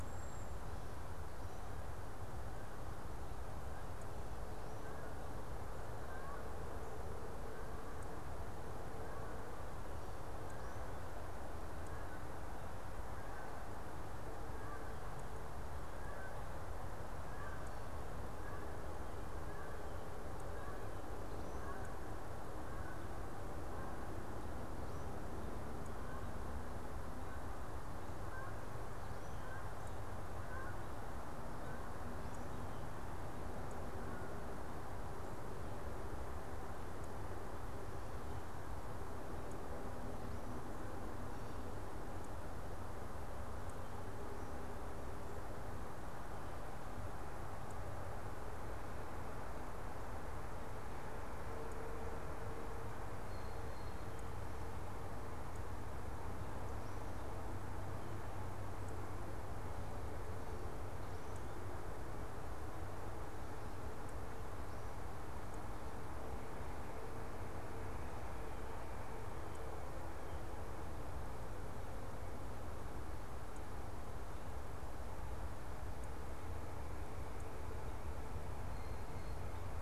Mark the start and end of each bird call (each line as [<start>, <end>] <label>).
[3.49, 6.89] Canada Goose (Branta canadensis)
[14.49, 35.09] Canada Goose (Branta canadensis)